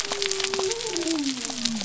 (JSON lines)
{"label": "biophony", "recorder": "SoundTrap 300"}